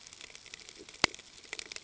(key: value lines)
label: ambient
recorder: HydroMoth